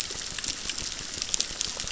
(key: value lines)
label: biophony, crackle
recorder: SoundTrap 600